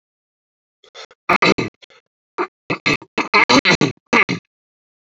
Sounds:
Throat clearing